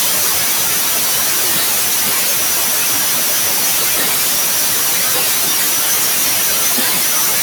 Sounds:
Cough